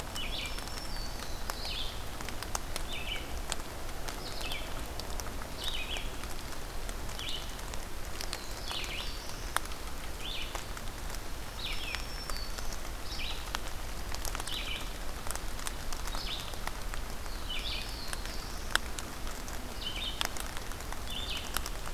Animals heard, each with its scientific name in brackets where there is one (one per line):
Black-throated Blue Warbler (Setophaga caerulescens)
Red-eyed Vireo (Vireo olivaceus)
Black-throated Green Warbler (Setophaga virens)